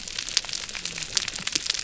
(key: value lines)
label: biophony, whup
recorder: SoundTrap 300